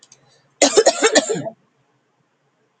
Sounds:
Cough